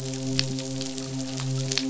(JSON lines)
{"label": "biophony, midshipman", "recorder": "SoundTrap 500"}